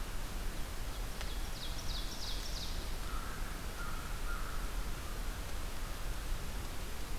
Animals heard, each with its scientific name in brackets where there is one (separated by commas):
American Crow (Corvus brachyrhynchos), Ovenbird (Seiurus aurocapilla)